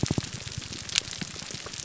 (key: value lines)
label: biophony, grouper groan
recorder: SoundTrap 300